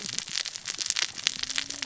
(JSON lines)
{"label": "biophony, cascading saw", "recorder": "SoundTrap 600 or HydroMoth"}